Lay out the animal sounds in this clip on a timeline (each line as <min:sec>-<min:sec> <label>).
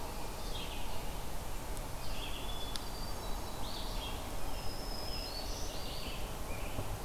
0:00.0-0:07.0 Red-eyed Vireo (Vireo olivaceus)
0:02.2-0:03.6 Hermit Thrush (Catharus guttatus)
0:04.4-0:06.8 Scarlet Tanager (Piranga olivacea)
0:04.4-0:05.8 Black-throated Green Warbler (Setophaga virens)